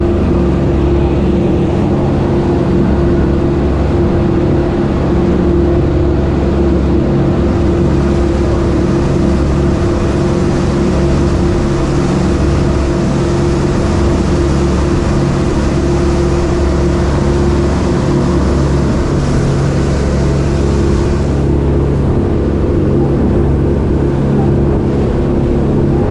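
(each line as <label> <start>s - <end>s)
Ocean waves sound faintly in the background. 0.0s - 26.1s
The loud sound of a boat engine in the ocean. 0.0s - 26.1s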